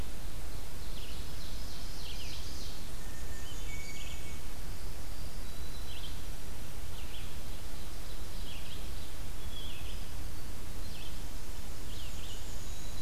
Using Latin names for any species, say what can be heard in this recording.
Vireo olivaceus, Seiurus aurocapilla, Catharus guttatus, Poecile atricapillus